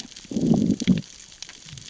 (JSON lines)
{"label": "biophony, growl", "recorder": "SoundTrap 600 or HydroMoth"}